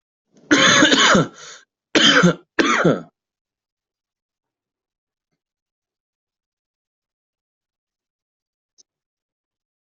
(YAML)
expert_labels:
- quality: good
  cough_type: dry
  dyspnea: false
  wheezing: true
  stridor: false
  choking: false
  congestion: false
  nothing: false
  diagnosis: obstructive lung disease
  severity: mild
age: 32
gender: male
respiratory_condition: true
fever_muscle_pain: true
status: healthy